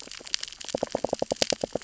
{"label": "biophony, knock", "recorder": "SoundTrap 600 or HydroMoth"}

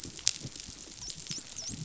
{"label": "biophony", "recorder": "SoundTrap 500"}
{"label": "biophony, dolphin", "recorder": "SoundTrap 500"}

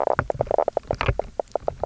{"label": "biophony, knock croak", "recorder": "SoundTrap 300"}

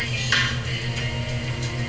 {"label": "anthrophony, boat engine", "recorder": "SoundTrap 300"}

